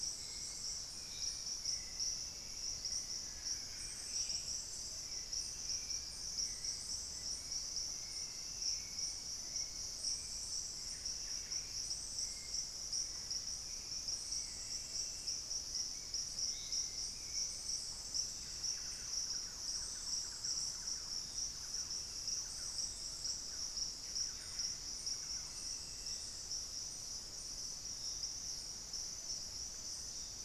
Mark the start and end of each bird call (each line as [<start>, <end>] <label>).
[0.00, 18.24] Hauxwell's Thrush (Turdus hauxwelli)
[3.04, 4.34] Buff-breasted Wren (Cantorchilus leucotis)
[10.64, 11.94] Buff-breasted Wren (Cantorchilus leucotis)
[18.04, 19.34] Buff-breasted Wren (Cantorchilus leucotis)
[18.44, 25.74] Thrush-like Wren (Campylorhynchus turdinus)
[23.84, 25.14] Buff-breasted Wren (Cantorchilus leucotis)
[28.94, 30.44] Plumbeous Pigeon (Patagioenas plumbea)